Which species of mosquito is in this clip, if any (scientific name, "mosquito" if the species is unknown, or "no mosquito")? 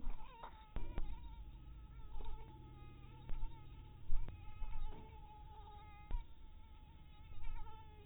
mosquito